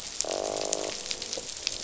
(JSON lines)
{"label": "biophony, croak", "recorder": "SoundTrap 500"}